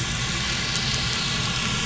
{"label": "anthrophony, boat engine", "recorder": "SoundTrap 500"}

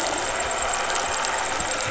{"label": "anthrophony, boat engine", "recorder": "SoundTrap 500"}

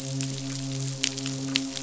{"label": "biophony, midshipman", "recorder": "SoundTrap 500"}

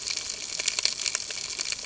{"label": "ambient", "recorder": "HydroMoth"}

